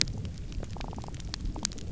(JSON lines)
{"label": "biophony", "recorder": "SoundTrap 300"}